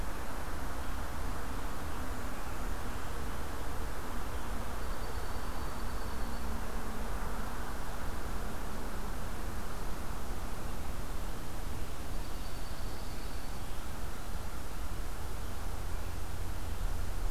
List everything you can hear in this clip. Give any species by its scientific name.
Junco hyemalis